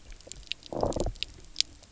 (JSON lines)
{"label": "biophony, low growl", "recorder": "SoundTrap 300"}